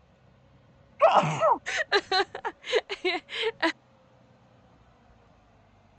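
A faint, constant noise persists. At 0.99 seconds, someone sneezes. After that, at 1.65 seconds, a person chuckles.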